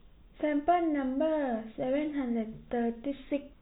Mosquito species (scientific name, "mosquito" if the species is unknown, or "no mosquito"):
no mosquito